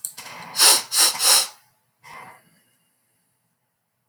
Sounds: Sniff